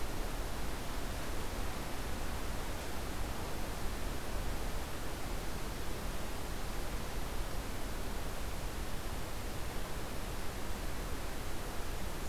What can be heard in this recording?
forest ambience